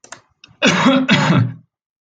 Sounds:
Cough